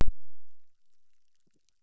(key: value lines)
label: biophony, chorus
recorder: SoundTrap 600